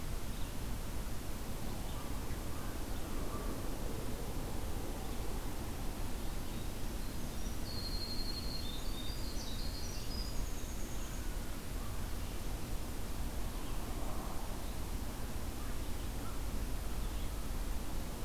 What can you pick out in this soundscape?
Red-eyed Vireo, American Crow, Winter Wren